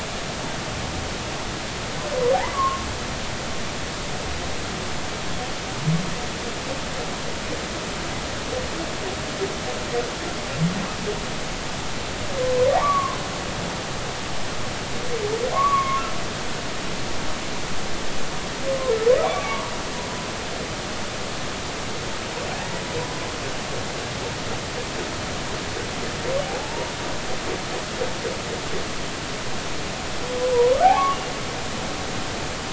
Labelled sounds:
2.3	2.9	humpback whale, 0.80 to 1.2 kHz
12.7	13.2	humpback whale, 0.80 to 1.2 kHz
15.5	16.0	humpback whale, 0.96 to 2.3 kHz
19.2	19.7	humpback whale, 0.80 to 1.2 kHz
26.4	26.9	humpback whale, 0.80 to 0.99 kHz
30.5	31.2	humpback whale, 0.80 to 1.2 kHz

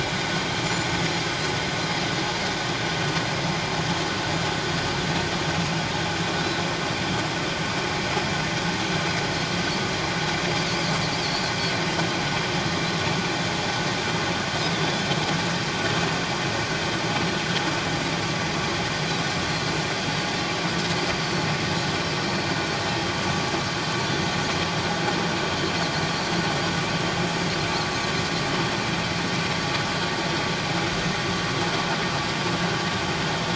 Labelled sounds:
0.6	0.9	Pacific white-sided dolphin, 6.9 to 7.2 kHz
14.7	15.0	Pacific white-sided dolphin, 3.3 to 3.6 kHz
21.2	21.5	Pacific white-sided dolphin, 4.2 to 4.5 kHz

